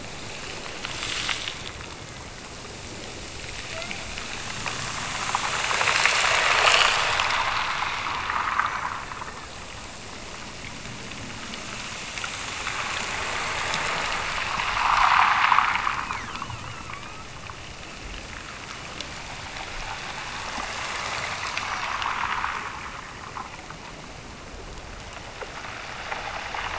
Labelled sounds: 3.7	4.2	killer whale, Bigg's (transient), Gulf of Alaska transient, 0.54 to 2.4 kHz

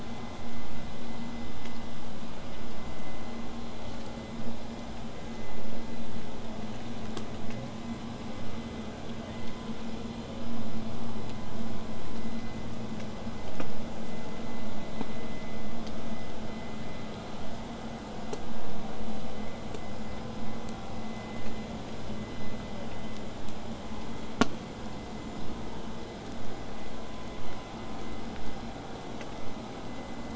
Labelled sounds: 25.4	30.3	vessel noise, 0 to 8.0 kHz

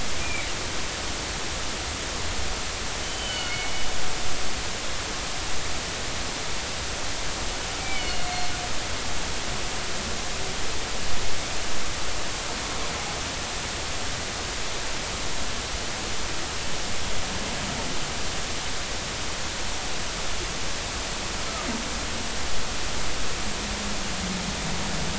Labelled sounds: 0.2	0.5	humpback whale, 2.2 to 2.6 kHz
3.0	3.7	humpback whale, 2.1 to 3.1 kHz
7.8	8.3	humpback whale, 2.1 to 4.5 kHz

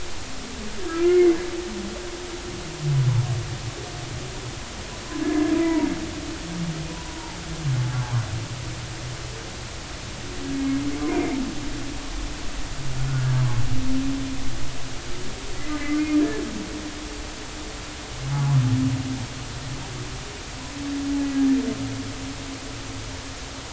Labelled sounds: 0.9	1.4	humpback whale, 1.2 to 2.2 kHz
5.1	5.9	humpback whale, 0.90 to 1.8 kHz
7.1	7.4	humpback whale, 0.80 to 0.99 kHz
10.5	11.4	humpback whale, 2.0 to 2.5 kHz
15.8	16.2	humpback whale, 2.0 to 2.2 kHz

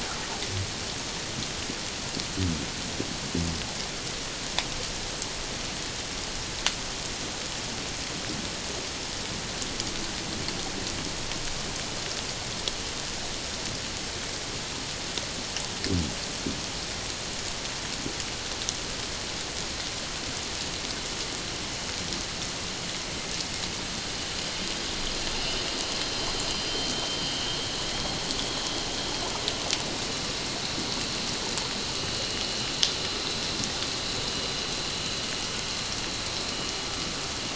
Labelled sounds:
25.4	25.6	vessel noise, 2.7 to 3.1 kHz
26.5	27.9	vessel noise, 2.9 to 4.9 kHz
28.4	28.8	vessel noise, 3.2 to 3.6 kHz

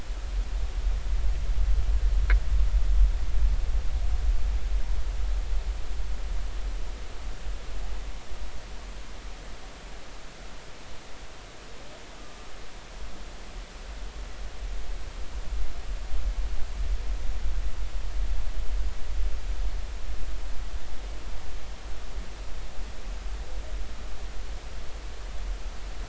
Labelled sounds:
12.2	12.5	humpback whale, 1.15 to 1.25 kHz

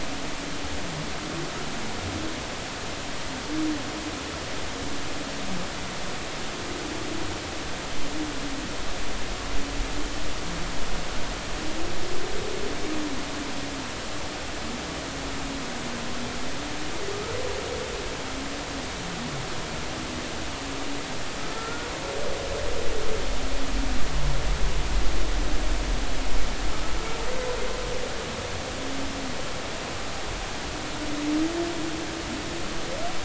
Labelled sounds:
21.4	21.9	humpback whale, 1.3 to 1.5 kHz

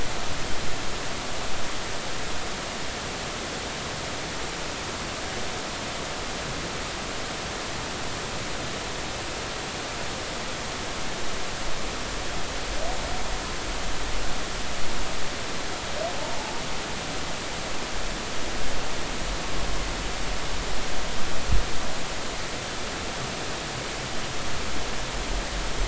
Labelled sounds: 16.2	16.5	humpback whale, 0.80 to 0.96 kHz

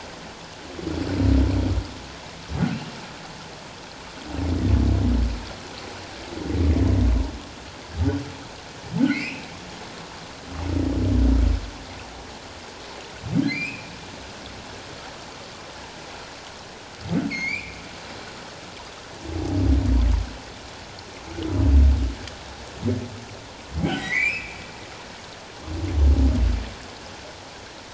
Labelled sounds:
9.1	9.5	humpback whale, 1.9 to 2.8 kHz
13.5	13.9	humpback whale, 2.0 to 2.7 kHz
17.3	17.8	humpback whale, 2.0 to 6.6 kHz
23.8	24.6	humpback whale, 0.78 to 3.3 kHz

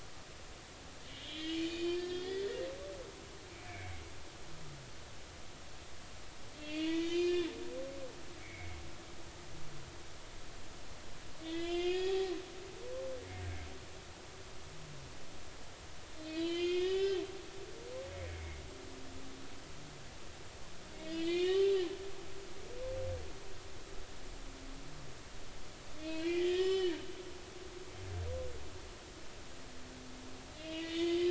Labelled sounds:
1.1	2.5	humpback whale, 1.7 to 5.1 kHz
3.7	4.0	humpback whale, 2.1 to 2.4 kHz
6.6	7.5	humpback whale, 1.9 to 5.0 kHz
8.4	8.8	humpback whale, 2.0 to 2.4 kHz
11.4	12.3	humpback whale, 1.8 to 5.2 kHz
16.2	17.2	humpback whale, 1.5 to 5.3 kHz
21.0	21.7	humpback whale, 1.9 to 4.4 kHz
26.0	27.0	humpback whale, 1.1 to 5.4 kHz
30.6	31.3	humpback whale, 1.9 to 6.6 kHz

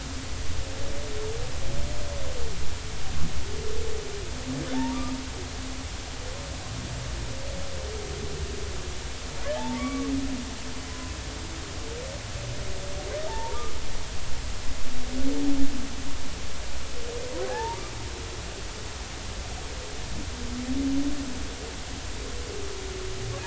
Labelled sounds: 4.7	5.0	humpback whale, 0.80 to 0.99 kHz
9.5	10.1	humpback whale, 0.80 to 1.2 kHz
10.8	11.2	humpback whale, 0.96 to 1.1 kHz
13.3	13.6	humpback whale, 0.83 to 0.99 kHz
17.5	17.8	humpback whale, 0.80 to 0.99 kHz

